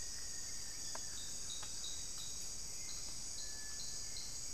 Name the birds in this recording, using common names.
Rufous-fronted Antthrush, Cinereous Tinamou, Hauxwell's Thrush